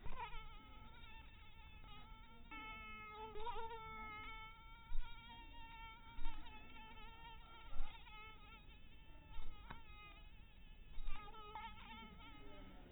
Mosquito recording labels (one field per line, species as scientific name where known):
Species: mosquito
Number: one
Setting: cup